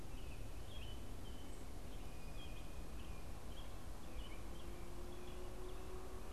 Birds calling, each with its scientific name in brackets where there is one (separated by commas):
American Robin (Turdus migratorius), Blue Jay (Cyanocitta cristata)